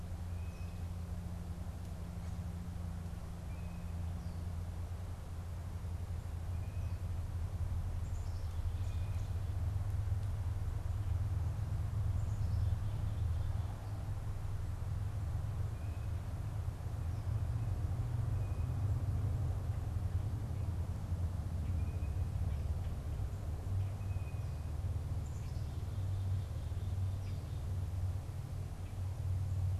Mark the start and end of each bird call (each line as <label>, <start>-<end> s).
unidentified bird, 0.0-7.2 s
Black-capped Chickadee (Poecile atricapillus), 12.0-14.0 s
unidentified bird, 15.5-22.5 s
unidentified bird, 24.0-24.5 s
Black-capped Chickadee (Poecile atricapillus), 24.9-27.4 s